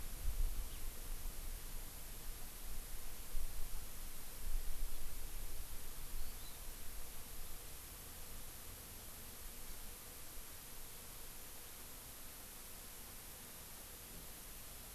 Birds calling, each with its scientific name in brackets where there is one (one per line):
Hawaii Amakihi (Chlorodrepanis virens)